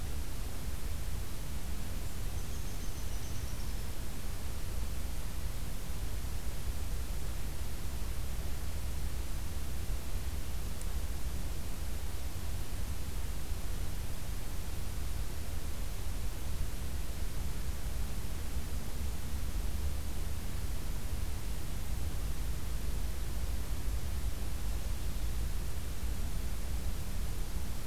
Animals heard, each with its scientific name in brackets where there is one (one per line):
Downy Woodpecker (Dryobates pubescens)